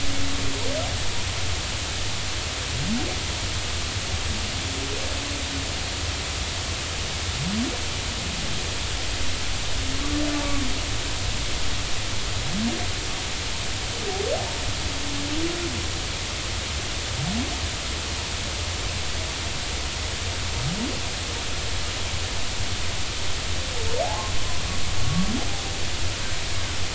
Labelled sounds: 24.0	24.3	humpback whale, 0.80 to 0.93 kHz

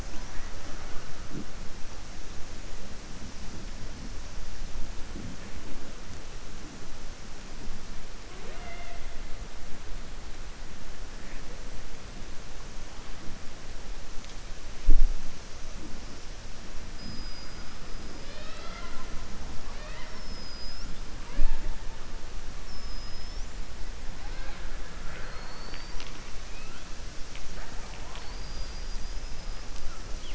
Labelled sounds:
18.1	19.1	killer whale, southern resident, 0.57 to 5.4 kHz
24.9	26.2	killer whale, southern resident, 0.53 to 6.0 kHz

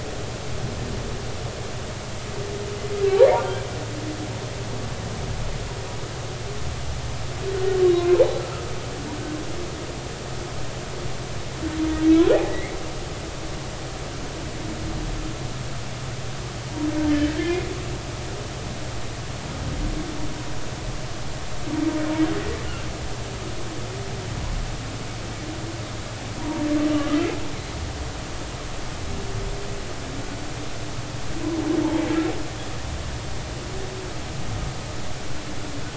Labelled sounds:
8.3	8.6	humpback whale, 1.2 to 1.4 kHz
12.4	12.8	humpback whale, 1.9 to 2.3 kHz
17.4	17.7	humpback whale, 2.0 to 2.2 kHz
26.4	26.6	humpback whale, 0.90 to 1.0 kHz

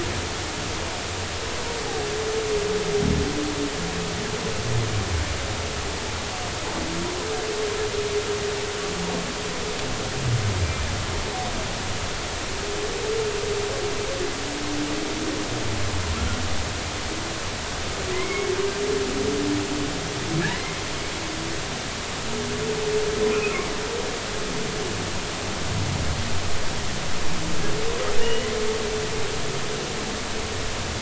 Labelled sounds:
18.1	18.5	humpback whale, 1.9 to 2.3 kHz
20.5	20.8	humpback whale, 1.9 to 2.2 kHz
23.3	23.6	humpback whale, 2.4 to 2.7 kHz
28.2	28.6	humpback whale, 1.6 to 3.0 kHz

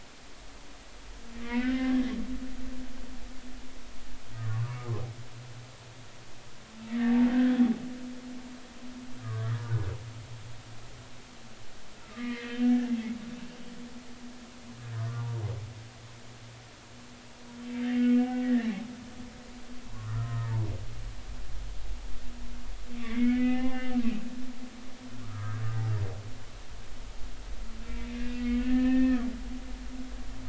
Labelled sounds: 1.4	2.1	humpback whale, 1.4 to 2.6 kHz
4.4	4.8	humpback whale, 0.93 to 1.2 kHz
6.9	7.2	humpback whale, 1.7 to 2.0 kHz
9.2	9.5	humpback whale, 1.1 to 1.3 kHz
12.1	12.7	humpback whale, 1.2 to 3.2 kHz
15.1	15.4	humpback whale, 0.80 to 1.2 kHz
17.8	18.7	humpback whale, 1.4 to 3.3 kHz
19.9	20.5	humpback whale, 0.90 to 1.9 kHz
23.0	24.0	humpback whale, 0.80 to 3.7 kHz
25.3	25.6	humpback whale, 1.1 to 1.7 kHz
27.9	29.2	humpback whale, 1.6 to 4.2 kHz

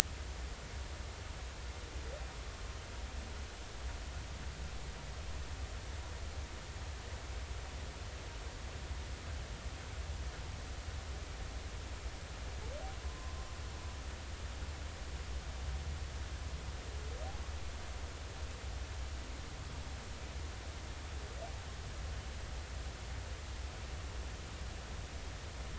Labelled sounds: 13.0	13.3	humpback whale, 0.99 to 1.1 kHz

